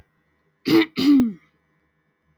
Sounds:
Throat clearing